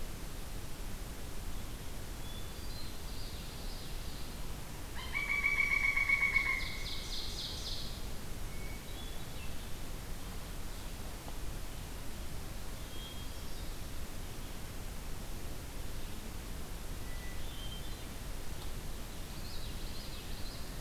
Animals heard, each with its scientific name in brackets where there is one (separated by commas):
Hermit Thrush (Catharus guttatus), Common Yellowthroat (Geothlypis trichas), Ovenbird (Seiurus aurocapilla), Pileated Woodpecker (Dryocopus pileatus)